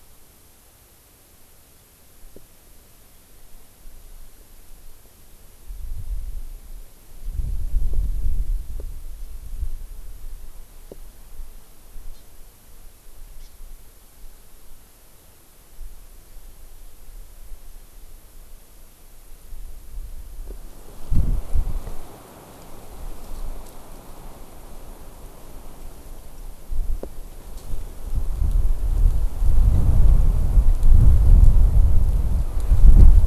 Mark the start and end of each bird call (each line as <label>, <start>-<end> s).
Hawaii Amakihi (Chlorodrepanis virens), 12.1-12.3 s
Hawaii Amakihi (Chlorodrepanis virens), 13.4-13.5 s